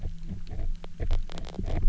{"label": "anthrophony, boat engine", "recorder": "SoundTrap 300"}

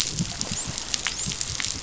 {"label": "biophony, dolphin", "recorder": "SoundTrap 500"}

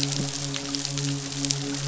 {"label": "biophony, midshipman", "recorder": "SoundTrap 500"}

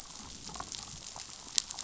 {"label": "biophony, damselfish", "recorder": "SoundTrap 500"}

